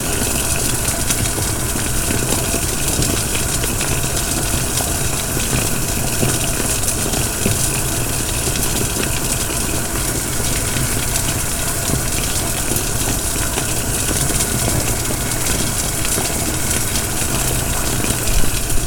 Is the weather wet?
yes